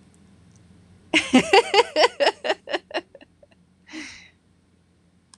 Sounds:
Laughter